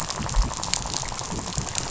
{"label": "biophony, rattle", "recorder": "SoundTrap 500"}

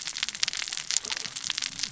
{"label": "biophony, cascading saw", "recorder": "SoundTrap 600 or HydroMoth"}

